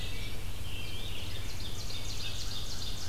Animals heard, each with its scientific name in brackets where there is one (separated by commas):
Ovenbird (Seiurus aurocapilla), American Crow (Corvus brachyrhynchos), American Robin (Turdus migratorius), Red-eyed Vireo (Vireo olivaceus)